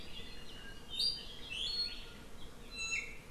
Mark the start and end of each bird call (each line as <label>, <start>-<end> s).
Iiwi (Drepanis coccinea), 0.9-2.2 s
Iiwi (Drepanis coccinea), 2.7-3.2 s